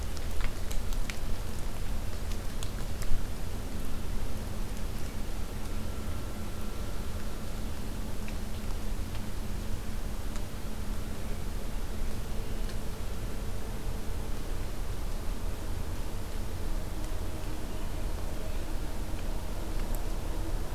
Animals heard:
forest ambience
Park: Acadia National Park